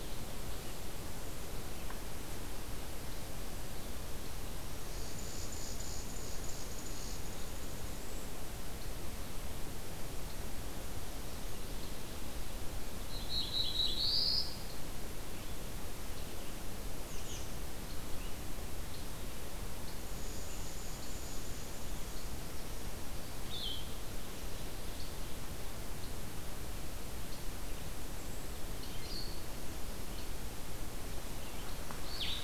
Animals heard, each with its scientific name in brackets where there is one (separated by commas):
unidentified call, Black-throated Blue Warbler (Setophaga caerulescens), Blue-headed Vireo (Vireo solitarius)